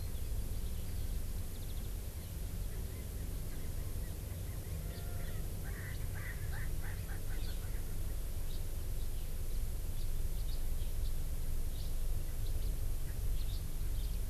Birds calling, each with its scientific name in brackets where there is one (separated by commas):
House Finch (Haemorhous mexicanus), Erckel's Francolin (Pternistis erckelii)